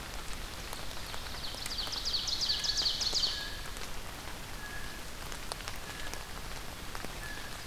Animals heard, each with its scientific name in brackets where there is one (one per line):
Ovenbird (Seiurus aurocapilla)
Blue Jay (Cyanocitta cristata)